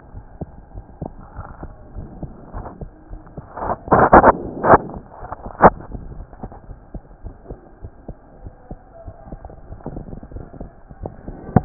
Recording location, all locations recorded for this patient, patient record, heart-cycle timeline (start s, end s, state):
aortic valve (AV)
aortic valve (AV)+pulmonary valve (PV)+tricuspid valve (TV)+mitral valve (MV)
#Age: Child
#Sex: Female
#Height: 122.0 cm
#Weight: 23.6 kg
#Pregnancy status: False
#Murmur: Absent
#Murmur locations: nan
#Most audible location: nan
#Systolic murmur timing: nan
#Systolic murmur shape: nan
#Systolic murmur grading: nan
#Systolic murmur pitch: nan
#Systolic murmur quality: nan
#Diastolic murmur timing: nan
#Diastolic murmur shape: nan
#Diastolic murmur grading: nan
#Diastolic murmur pitch: nan
#Diastolic murmur quality: nan
#Outcome: Abnormal
#Campaign: 2015 screening campaign
0.00	6.67	unannotated
6.67	6.78	S1
6.78	6.92	systole
6.92	7.04	S2
7.04	7.20	diastole
7.20	7.32	S1
7.32	7.48	systole
7.48	7.60	S2
7.60	7.82	diastole
7.82	7.92	S1
7.92	8.06	systole
8.06	8.16	S2
8.16	8.42	diastole
8.42	8.54	S1
8.54	8.68	systole
8.68	8.78	S2
8.78	9.04	diastole
9.04	9.14	S1
9.14	9.28	systole
9.28	9.40	S2
9.40	9.67	diastole
9.67	9.76	S1
9.76	9.93	systole
9.93	10.03	S2
10.03	10.31	diastole
10.31	10.47	S1
10.47	10.57	systole
10.57	10.72	S2
10.72	10.99	diastole
10.99	11.10	S1
11.10	11.65	unannotated